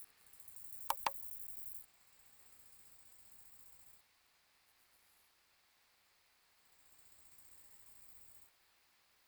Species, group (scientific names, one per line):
Chorthippus biguttulus
Orthoptera